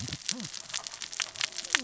{"label": "biophony, cascading saw", "recorder": "SoundTrap 600 or HydroMoth"}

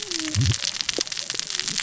{"label": "biophony, cascading saw", "recorder": "SoundTrap 600 or HydroMoth"}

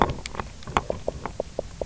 {"label": "biophony, knock croak", "recorder": "SoundTrap 300"}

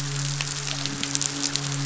{"label": "biophony, midshipman", "recorder": "SoundTrap 500"}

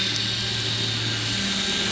{"label": "anthrophony, boat engine", "recorder": "SoundTrap 500"}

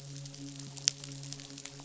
{"label": "biophony, midshipman", "recorder": "SoundTrap 500"}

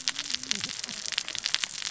{"label": "biophony, cascading saw", "recorder": "SoundTrap 600 or HydroMoth"}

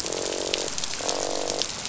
{"label": "biophony, croak", "recorder": "SoundTrap 500"}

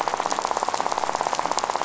{"label": "biophony, rattle", "recorder": "SoundTrap 500"}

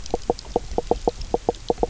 {"label": "biophony, knock croak", "recorder": "SoundTrap 300"}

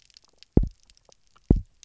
{"label": "biophony, double pulse", "recorder": "SoundTrap 300"}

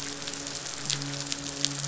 {"label": "biophony, midshipman", "recorder": "SoundTrap 500"}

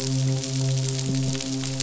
{"label": "biophony, midshipman", "recorder": "SoundTrap 500"}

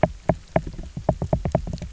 {"label": "biophony, knock", "recorder": "SoundTrap 300"}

